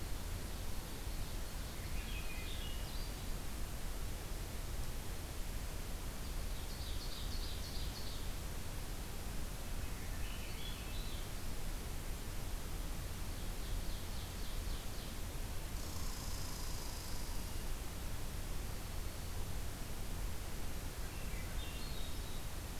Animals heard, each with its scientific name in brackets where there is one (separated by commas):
Broad-winged Hawk (Buteo platypterus), Red Squirrel (Tamiasciurus hudsonicus), Ovenbird (Seiurus aurocapilla), Swainson's Thrush (Catharus ustulatus)